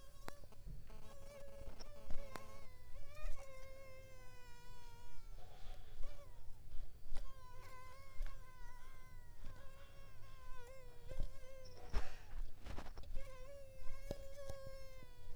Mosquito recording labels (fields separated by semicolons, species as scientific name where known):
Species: Mansonia africanus; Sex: female; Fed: unfed; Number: one; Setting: cup